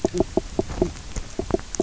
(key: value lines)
label: biophony, knock
recorder: SoundTrap 300